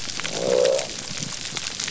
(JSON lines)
{"label": "biophony", "recorder": "SoundTrap 300"}